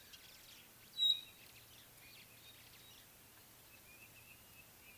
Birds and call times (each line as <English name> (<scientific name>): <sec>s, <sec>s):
Pygmy Batis (Batis perkeo): 1.1s